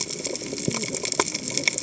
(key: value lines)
label: biophony, cascading saw
recorder: HydroMoth